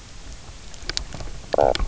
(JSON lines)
{"label": "biophony, knock croak", "recorder": "SoundTrap 300"}